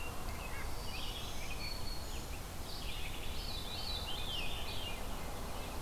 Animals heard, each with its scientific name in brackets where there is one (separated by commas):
Rose-breasted Grosbeak (Pheucticus ludovicianus), Veery (Catharus fuscescens), Black-throated Green Warbler (Setophaga virens), Red-eyed Vireo (Vireo olivaceus)